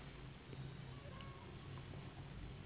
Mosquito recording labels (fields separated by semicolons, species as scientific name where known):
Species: Anopheles gambiae s.s.; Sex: female; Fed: unfed; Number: one; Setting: insect culture